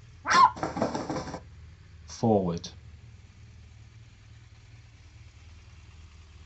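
First, a dog barks. Then a bird can be heard. Following that, a voice says "Forward." A quiet noise runs in the background.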